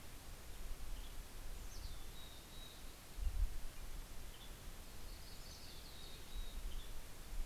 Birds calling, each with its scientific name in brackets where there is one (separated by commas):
Yellow-rumped Warbler (Setophaga coronata), Western Tanager (Piranga ludoviciana), Mountain Chickadee (Poecile gambeli)